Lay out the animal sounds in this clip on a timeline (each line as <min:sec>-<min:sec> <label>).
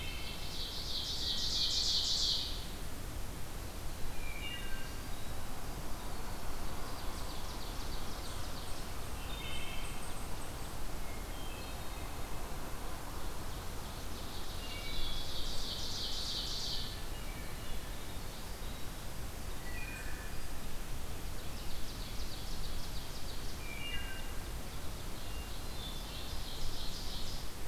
0:00.0-0:00.6 Wood Thrush (Hylocichla mustelina)
0:00.0-0:03.0 Ovenbird (Seiurus aurocapilla)
0:01.2-0:02.6 Hermit Thrush (Catharus guttatus)
0:03.8-0:07.1 Winter Wren (Troglodytes hiemalis)
0:04.1-0:05.0 Wood Thrush (Hylocichla mustelina)
0:06.5-0:09.0 Ovenbird (Seiurus aurocapilla)
0:09.0-0:10.1 Wood Thrush (Hylocichla mustelina)
0:10.9-0:12.3 Hermit Thrush (Catharus guttatus)
0:12.6-0:17.1 Ovenbird (Seiurus aurocapilla)
0:14.5-0:15.3 Wood Thrush (Hylocichla mustelina)
0:16.6-0:18.0 Hermit Thrush (Catharus guttatus)
0:17.2-0:19.1 Winter Wren (Troglodytes hiemalis)
0:19.6-0:20.6 Wood Thrush (Hylocichla mustelina)
0:21.3-0:27.7 Ovenbird (Seiurus aurocapilla)
0:23.5-0:24.3 Wood Thrush (Hylocichla mustelina)
0:25.1-0:26.3 Hermit Thrush (Catharus guttatus)